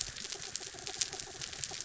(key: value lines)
label: anthrophony, mechanical
recorder: SoundTrap 300